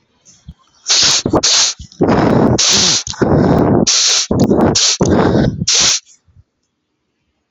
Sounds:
Sniff